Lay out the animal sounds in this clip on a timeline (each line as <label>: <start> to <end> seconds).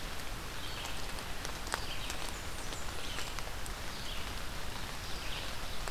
Red-eyed Vireo (Vireo olivaceus): 0.0 to 5.9 seconds
Blackburnian Warbler (Setophaga fusca): 2.0 to 3.5 seconds